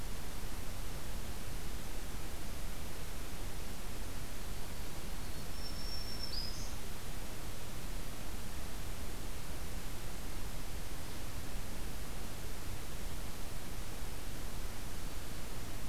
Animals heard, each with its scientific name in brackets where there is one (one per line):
Black-throated Green Warbler (Setophaga virens)